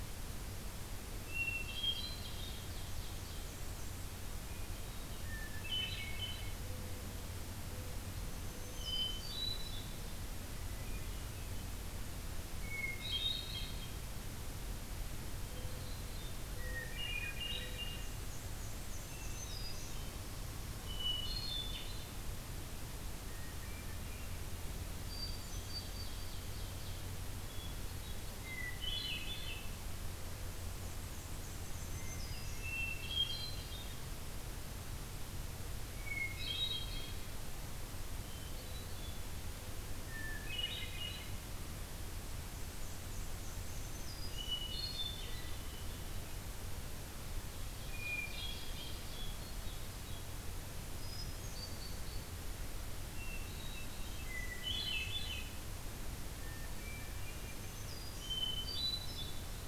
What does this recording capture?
Hermit Thrush, Ovenbird, Black-and-white Warbler, Mourning Dove, Black-throated Green Warbler